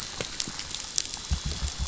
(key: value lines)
label: biophony
recorder: SoundTrap 500

label: anthrophony, boat engine
recorder: SoundTrap 500